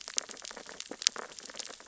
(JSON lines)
{"label": "biophony, sea urchins (Echinidae)", "recorder": "SoundTrap 600 or HydroMoth"}